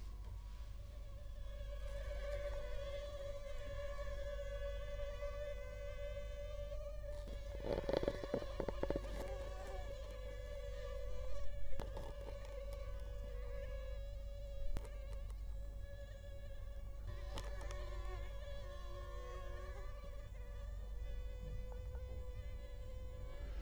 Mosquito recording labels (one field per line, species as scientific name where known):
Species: Culex quinquefasciatus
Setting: cup